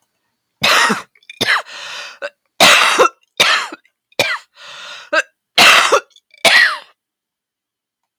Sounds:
Cough